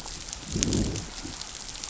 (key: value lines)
label: biophony, growl
recorder: SoundTrap 500